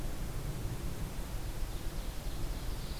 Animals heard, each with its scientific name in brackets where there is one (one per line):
Ovenbird (Seiurus aurocapilla)